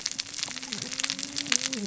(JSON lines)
{"label": "biophony, cascading saw", "recorder": "SoundTrap 600 or HydroMoth"}